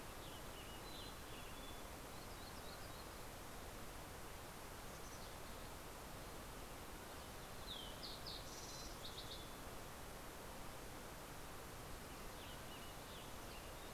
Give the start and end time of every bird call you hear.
0.0s-1.9s: Western Tanager (Piranga ludoviciana)
0.4s-1.9s: Mountain Chickadee (Poecile gambeli)
1.5s-3.4s: Yellow-rumped Warbler (Setophaga coronata)
4.5s-6.0s: Mountain Chickadee (Poecile gambeli)
6.6s-9.8s: Fox Sparrow (Passerella iliaca)
11.5s-13.9s: Western Tanager (Piranga ludoviciana)

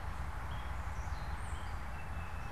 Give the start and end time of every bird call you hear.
0.0s-2.5s: Tufted Titmouse (Baeolophus bicolor)

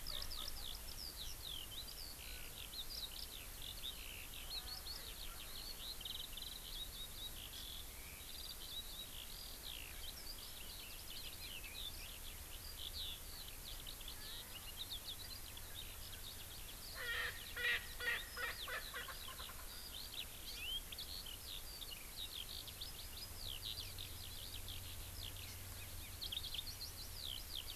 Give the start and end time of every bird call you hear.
0.0s-0.8s: Erckel's Francolin (Pternistis erckelii)
0.0s-27.8s: Eurasian Skylark (Alauda arvensis)
17.0s-19.6s: Erckel's Francolin (Pternistis erckelii)

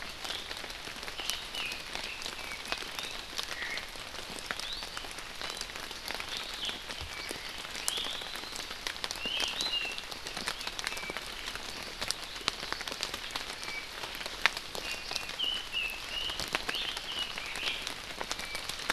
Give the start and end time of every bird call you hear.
1.2s-3.2s: Red-billed Leiothrix (Leiothrix lutea)
3.6s-3.9s: Omao (Myadestes obscurus)
4.6s-4.9s: Iiwi (Drepanis coccinea)
7.8s-8.4s: Iiwi (Drepanis coccinea)
9.2s-10.0s: Iiwi (Drepanis coccinea)
13.6s-13.9s: Apapane (Himatione sanguinea)
14.9s-15.4s: Iiwi (Drepanis coccinea)
15.4s-17.8s: Red-billed Leiothrix (Leiothrix lutea)
18.4s-18.7s: Apapane (Himatione sanguinea)

